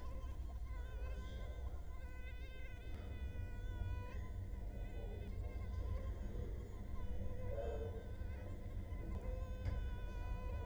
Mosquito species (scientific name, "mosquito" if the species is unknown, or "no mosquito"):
Culex quinquefasciatus